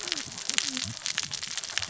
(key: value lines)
label: biophony, cascading saw
recorder: SoundTrap 600 or HydroMoth